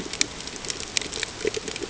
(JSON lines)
{"label": "ambient", "recorder": "HydroMoth"}